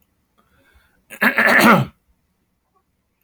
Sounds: Throat clearing